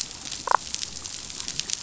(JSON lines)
{"label": "biophony, damselfish", "recorder": "SoundTrap 500"}